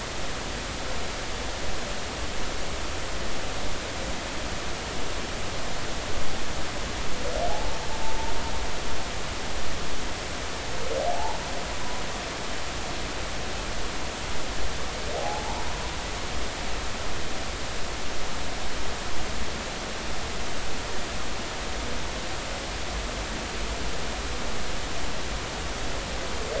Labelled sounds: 7.5	8.3	humpback whale, 0.80 to 0.96 kHz
11.1	11.4	humpback whale, 0.80 to 1.0 kHz
15.2	15.6	humpback whale, 0.80 to 0.99 kHz

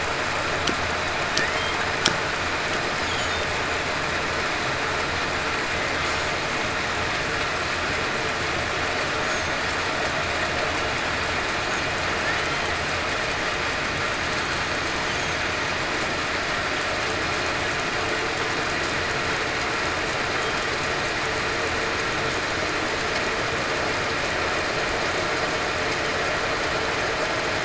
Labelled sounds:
1.3	1.8	killer whale, southern resident, 1.7 to 2.1 kHz

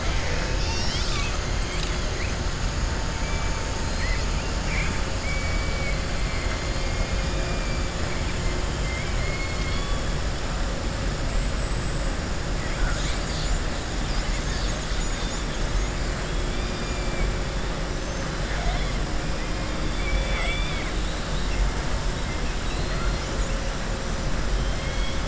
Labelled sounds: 5.2	6.0	killer whale, southern resident, 1.9 to 3.1 kHz
8.8	10.0	killer whale, southern resident, 2.1 to 4.5 kHz
11.3	12.1	killer whale, southern resident, 7.5 to 8.0 kHz
17.9	18.3	killer whale, southern resident, 5.8 to 6.3 kHz
19.8	20.9	killer whale, southern resident, 0.71 to 3.6 kHz
24.6	25.2	killer whale, southern resident, 1.6 to 3.5 kHz

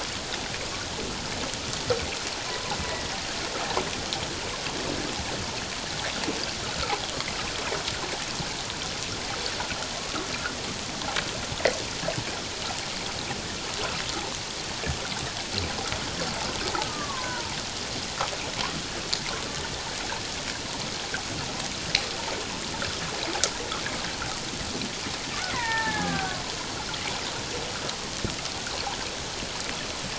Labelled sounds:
2.5	2.8	killer whale, Bigg's (transient), 0.78 to 1.1 kHz
16.8	17.6	killer whale, Bigg's (transient), 0.78 to 1.3 kHz
25.5	26.4	killer whale, Bigg's (transient), 0.78 to 2.2 kHz

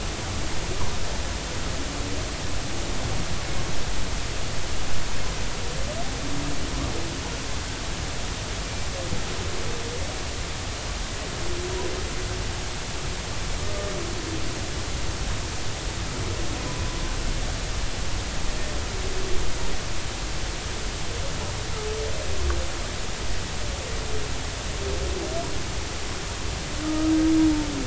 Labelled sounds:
26.8	27.1	humpback whale, 1.2 to 1.4 kHz

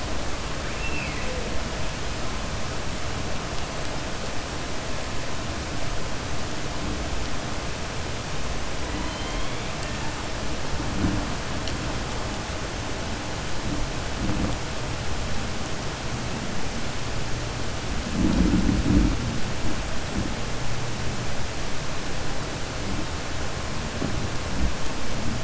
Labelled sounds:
0.7	1.4	killer whale, southern resident, 0.52 to 2.7 kHz
9.0	9.6	killer whale, southern resident, 2.1 to 4.1 kHz

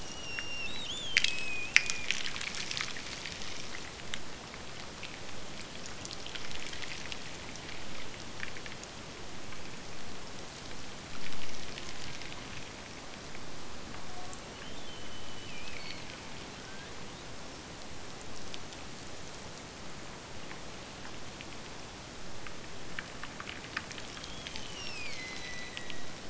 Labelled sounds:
0.0	2.2	killer whale, Bigg's (transient), Gulf of Alaska transient, 2.1 to 5.9 kHz
11.6	12.5	killer whale, Bigg's (transient), Gulf of Alaska transient, 0.66 to 1.9 kHz
13.9	16.4	killer whale, Bigg's (transient), Gulf of Alaska transient, 0.53 to 3.2 kHz
24.1	26.2	killer whale, Bigg's (transient), Gulf of Alaska transient, 1.8 to 6.6 kHz

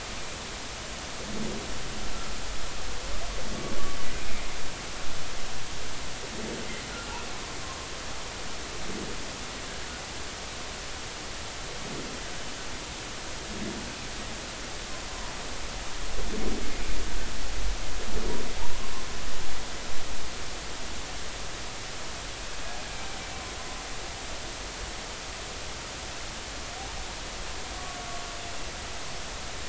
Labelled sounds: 7.6	7.9	humpback whale, 0.93 to 1.1 kHz
18.6	18.8	humpback whale, 0.80 to 1.1 kHz

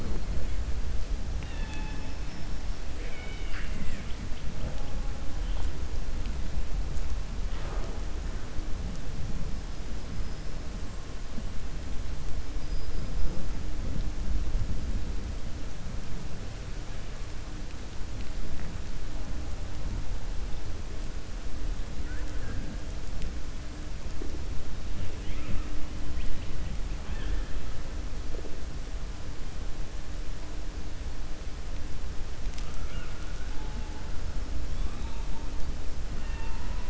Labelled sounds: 1.3	2.1	killer whale, 0.84 to 4.4 kHz
2.9	4.2	killer whale, 1.2 to 4.9 kHz
36.1	36.8	killer whale, 0.88 to 3.6 kHz

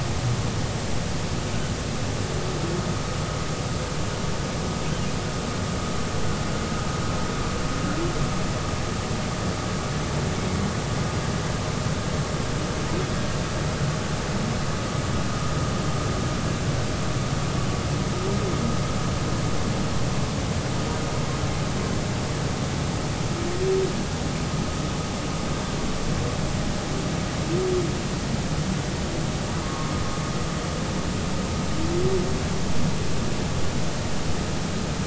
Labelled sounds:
29.6	29.9	humpback whale, 0.93 to 1.2 kHz

